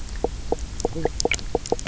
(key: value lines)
label: biophony, knock croak
recorder: SoundTrap 300